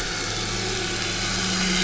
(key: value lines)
label: anthrophony, boat engine
recorder: SoundTrap 500